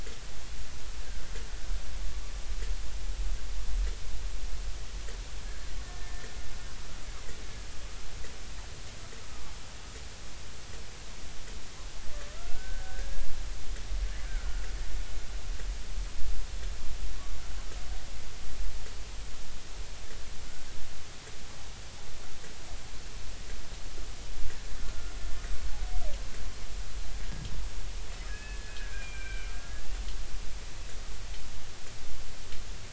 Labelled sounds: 1.0	1.3	killer whale, Bigg's (transient), 1.5 to 1.7 kHz
5.8	6.3	killer whale, Bigg's (transient), 1.7 to 2.0 kHz
12.3	13.1	killer whale, Bigg's (transient), 1.3 to 1.7 kHz
14.2	14.6	killer whale, Bigg's (transient), 1.3 to 1.7 kHz
28.3	30.0	killer whale, Bigg's (transient), 1.4 to 2.7 kHz

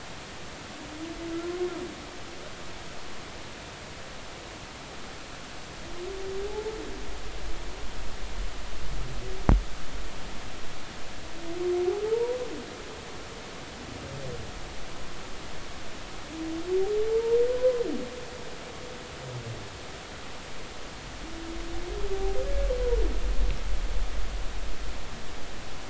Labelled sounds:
6.5	6.7	humpback whale, 0.80 to 0.93 kHz
12.1	12.4	humpback whale, 0.86 to 1.0 kHz
17.6	17.8	humpback whale, 0.96 to 1.1 kHz
22.4	22.7	humpback whale, 1.6 to 1.7 kHz

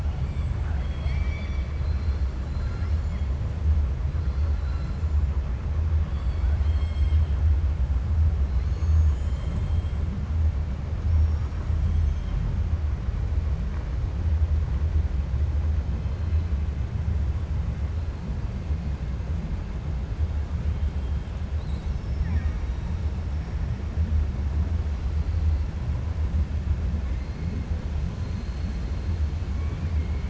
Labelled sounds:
0.5	2.3	killer whale, 0.80 to 5.8 kHz
6.0	7.3	killer whale, 0.73 to 5.4 kHz
9.1	9.8	killer whale, 2.2 to 5.3 kHz
11.0	11.5	killer whale, 5.2 to 6.5 kHz
28.2	28.8	killer whale, 3.8 to 4.4 kHz

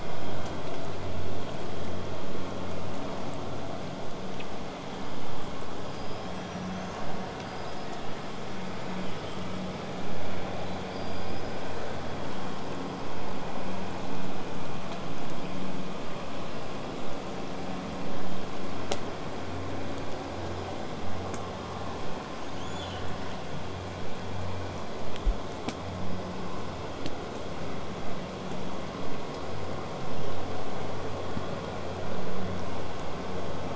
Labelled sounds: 0.0	5.0	vessel noise, 0 to 8.0 kHz
5.8	7.0	killer whale, southern resident, 4.6 to 8.0 kHz
7.3	8.4	killer whale, southern resident, 4.8 to 8.0 kHz
8.7	9.3	killer whale, southern resident, whistle, 6.3 to 8.0 kHz
10.8	11.7	killer whale, southern resident, 4.6 to 8.0 kHz
22.4	23.0	killer whale, southern resident, 2.3 to 7.1 kHz

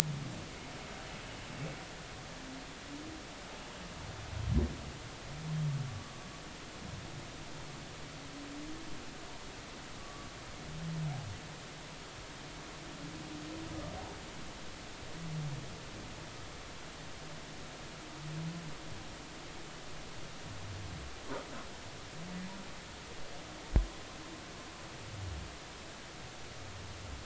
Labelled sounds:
5.9	6.1	humpback whale, 1.1 to 1.2 kHz
10.0	10.3	humpback whale, 1.1 to 1.2 kHz

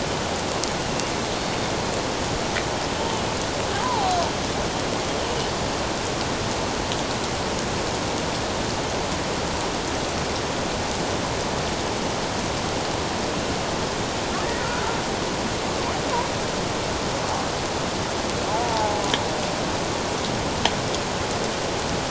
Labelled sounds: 3.7	4.2	killer whale, Bigg's (transient), 0.78 to 1.1 kHz
14.6	14.8	killer whale, Bigg's (transient), 1.3 to 1.6 kHz
18.5	19.0	killer whale, Bigg's (transient), 0.78 to 1.0 kHz

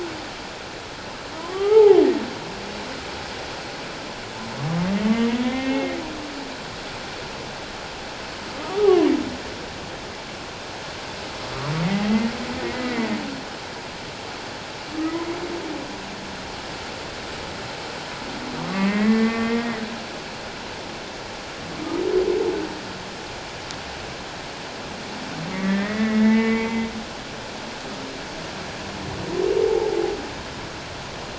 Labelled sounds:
1.4	2.0	humpback whale, 0.78 to 1.4 kHz
5.0	6.0	humpback whale, 1.1 to 2.8 kHz
8.6	9.1	humpback whale, 0.78 to 1.3 kHz
12.0	13.2	humpback whale, 1.8 to 2.3 kHz
18.7	19.8	humpback whale, 1.0 to 2.2 kHz
25.5	26.9	humpback whale, 1.1 to 2.3 kHz

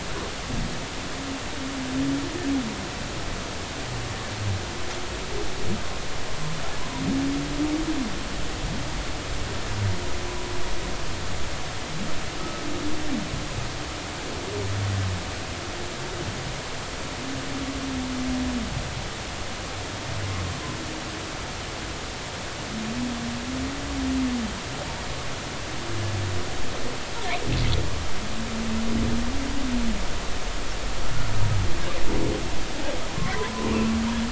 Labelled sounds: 12.4	12.6	humpback whale, 1.2 to 1.3 kHz

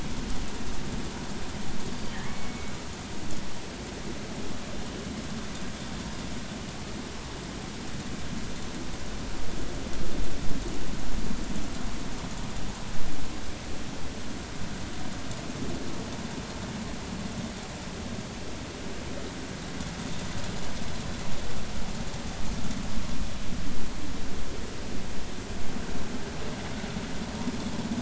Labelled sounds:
2.1	2.7	killer whale, northern resident, G clan, call N23i, 1.7 to 2.3 kHz

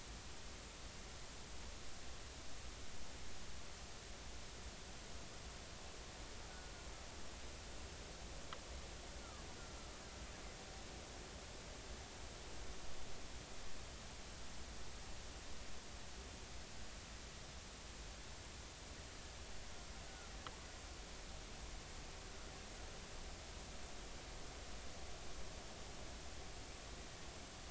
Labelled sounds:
20.1	20.3	killer whale, Bigg's (transient), 1.3 to 1.5 kHz

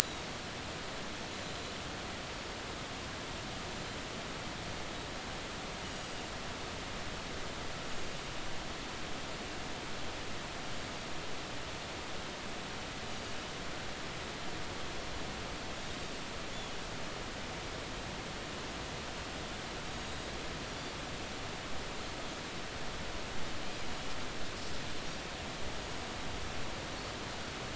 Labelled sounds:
0.0	0.3	Pacific white-sided dolphin, 3.7 to 4.0 kHz
19.9	20.1	Pacific white-sided dolphin, 6.6 to 6.7 kHz

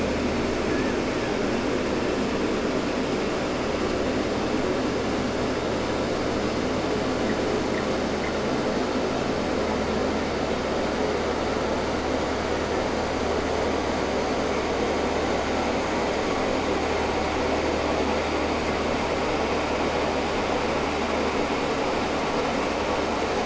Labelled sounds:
0.6	1.6	killer whale, Bigg's (transient), 0.79 to 2.4 kHz

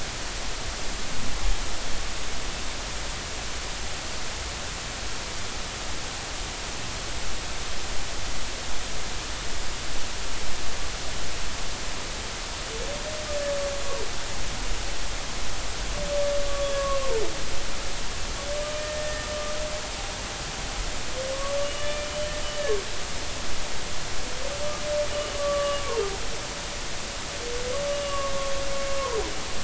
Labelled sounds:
16.5	17.1	humpback whale, 1.0 to 1.2 kHz
18.8	19.3	humpback whale, 1.8 to 1.9 kHz
21.6	22.1	humpback whale, 1.7 to 3.0 kHz
25.3	25.8	humpback whale, 1.1 to 1.2 kHz
27.9	28.5	humpback whale, 1.0 to 2.9 kHz
29.0	29.2	humpback whale, 0.93 to 1.1 kHz

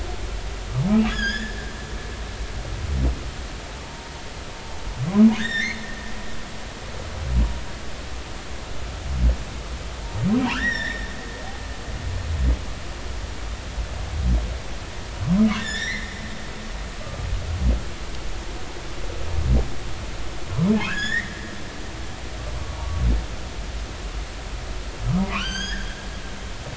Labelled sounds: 1.1	1.6	humpback whale, 1.5 to 7.0 kHz
3.8	4.1	humpback whale, 0.86 to 0.96 kHz
5.4	5.8	humpback whale, 1.5 to 5.9 kHz
10.5	11.1	humpback whale, 1.2 to 5.7 kHz
15.6	16.2	humpback whale, 1.5 to 7.2 kHz
17.0	17.3	humpback whale, 1.15 to 1.25 kHz
20.9	21.3	humpback whale, 1.3 to 7.0 kHz
25.1	25.9	humpback whale, 0.90 to 6.7 kHz

